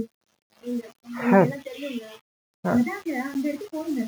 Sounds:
Sneeze